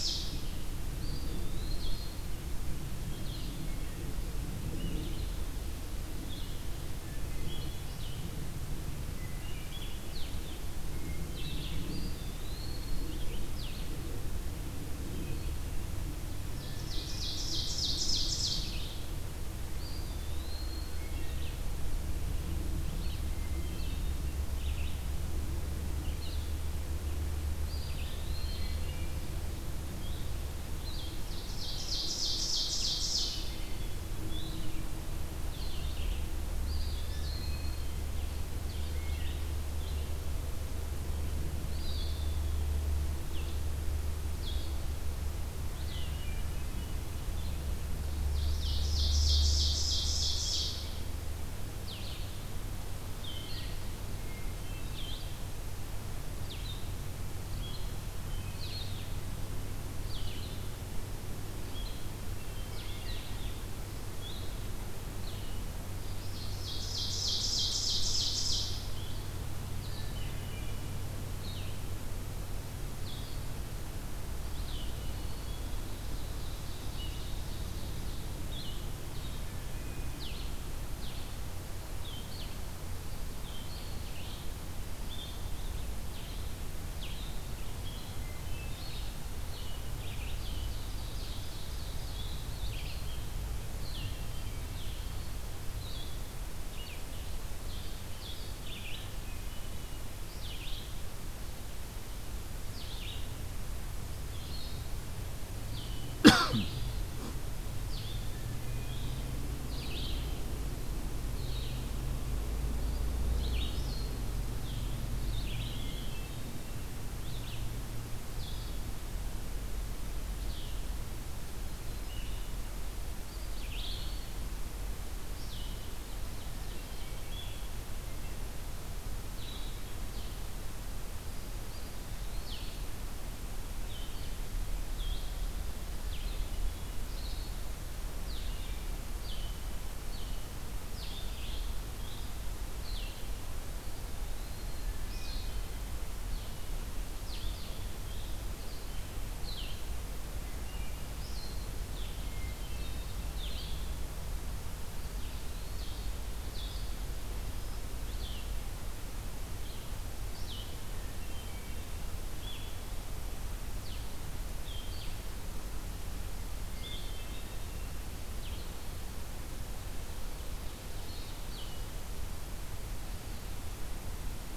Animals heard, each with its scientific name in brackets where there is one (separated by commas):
Eastern Wood-Pewee (Contopus virens), Blue-headed Vireo (Vireo solitarius), Ovenbird (Seiurus aurocapilla), Hermit Thrush (Catharus guttatus)